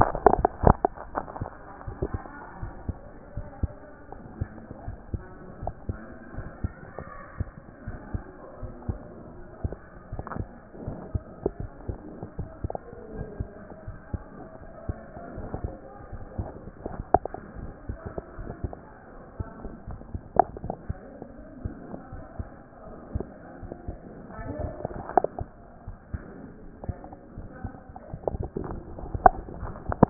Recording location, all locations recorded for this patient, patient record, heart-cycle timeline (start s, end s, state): mitral valve (MV)
aortic valve (AV)+mitral valve (MV)
#Age: Child
#Sex: Male
#Height: 92.0 cm
#Weight: 12.6 kg
#Pregnancy status: False
#Murmur: Absent
#Murmur locations: nan
#Most audible location: nan
#Systolic murmur timing: nan
#Systolic murmur shape: nan
#Systolic murmur grading: nan
#Systolic murmur pitch: nan
#Systolic murmur quality: nan
#Diastolic murmur timing: nan
#Diastolic murmur shape: nan
#Diastolic murmur grading: nan
#Diastolic murmur pitch: nan
#Diastolic murmur quality: nan
#Outcome: Abnormal
#Campaign: 2014 screening campaign
0.00	1.04	unannotated
1.04	1.12	diastole
1.12	1.26	S1
1.26	1.40	systole
1.40	1.48	S2
1.48	1.86	diastole
1.86	1.98	S1
1.98	2.12	systole
2.12	2.22	S2
2.22	2.60	diastole
2.60	2.74	S1
2.74	2.84	systole
2.84	2.98	S2
2.98	3.36	diastole
3.36	3.48	S1
3.48	3.62	systole
3.62	3.76	S2
3.76	4.16	diastole
4.16	4.24	S1
4.24	4.36	systole
4.36	4.50	S2
4.50	4.86	diastole
4.86	4.98	S1
4.98	5.12	systole
5.12	5.26	S2
5.26	5.60	diastole
5.60	5.74	S1
5.74	5.84	systole
5.84	6.00	S2
6.00	6.36	diastole
6.36	6.50	S1
6.50	6.60	systole
6.60	6.74	S2
6.74	7.16	diastole
7.16	7.22	S1
7.22	7.36	systole
7.36	7.50	S2
7.50	7.86	diastole
7.86	8.00	S1
8.00	8.10	systole
8.10	8.24	S2
8.24	8.62	diastole
8.62	8.76	S1
8.76	8.86	systole
8.86	9.00	S2
9.00	9.38	diastole
9.38	9.44	S1
9.44	9.60	systole
9.60	9.74	S2
9.74	10.12	diastole
10.12	10.26	S1
10.26	10.34	systole
10.34	10.48	S2
10.48	10.82	diastole
10.82	11.00	S1
11.00	11.10	systole
11.10	11.24	S2
11.24	11.60	diastole
11.60	11.70	S1
11.70	11.86	systole
11.86	12.00	S2
12.00	12.38	diastole
12.38	12.50	S1
12.50	12.60	systole
12.60	12.74	S2
12.74	13.14	diastole
13.14	13.28	S1
13.28	13.38	systole
13.38	13.50	S2
13.50	13.88	diastole
13.88	13.98	S1
13.98	14.10	systole
14.10	14.24	S2
14.24	14.68	diastole
14.68	14.76	S1
14.76	14.88	systole
14.88	14.98	S2
14.98	15.36	diastole
15.36	15.50	S1
15.50	15.62	systole
15.62	15.76	S2
15.76	16.14	diastole
16.14	16.28	S1
16.28	16.38	systole
16.38	16.50	S2
16.50	16.84	diastole
16.84	16.98	S1
16.98	17.10	systole
17.10	17.22	S2
17.22	17.58	diastole
17.58	17.74	S1
17.74	17.88	systole
17.88	18.00	S2
18.00	18.38	diastole
18.38	18.52	S1
18.52	18.62	systole
18.62	18.74	S2
18.74	19.18	diastole
19.18	19.24	S1
19.24	19.36	systole
19.36	19.48	S2
19.48	19.88	diastole
19.88	20.02	S1
20.02	20.10	systole
20.10	20.24	S2
20.24	20.62	diastole
20.62	20.78	S1
20.78	20.86	systole
20.86	21.00	S2
21.00	21.40	diastole
21.40	21.46	S1
21.46	21.62	systole
21.62	21.76	S2
21.76	22.14	diastole
22.14	22.24	S1
22.24	22.38	systole
22.38	22.50	S2
22.50	22.90	diastole
22.90	22.98	S1
22.98	23.12	systole
23.12	23.28	S2
23.28	23.62	diastole
23.62	23.72	S1
23.72	23.88	systole
23.88	24.00	S2
24.00	24.31	diastole
24.31	24.50	S1
24.50	24.58	systole
24.58	24.74	S2
24.74	25.12	diastole
25.12	25.24	S1
25.24	25.38	systole
25.38	25.48	S2
25.48	25.88	diastole
25.88	25.96	S1
25.96	26.10	systole
26.10	26.24	S2
26.24	26.64	diastole
26.64	26.70	S1
26.70	26.84	systole
26.84	27.00	S2
27.00	27.36	diastole
27.36	27.50	S1
27.50	27.62	systole
27.62	27.74	S2
27.74	28.12	diastole
28.12	28.22	S1
28.22	28.36	systole
28.36	28.52	S2
28.52	28.96	diastole
28.96	29.12	S1
29.12	29.22	systole
29.22	29.34	S2
29.34	29.64	diastole
29.64	29.82	S1
29.82	30.00	systole
30.00	30.10	S2